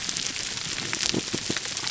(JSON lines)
{"label": "biophony", "recorder": "SoundTrap 300"}